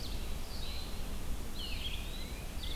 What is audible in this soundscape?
Red-eyed Vireo, Eastern Wood-Pewee, Tufted Titmouse